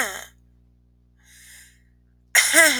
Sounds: Cough